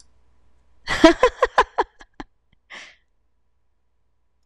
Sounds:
Laughter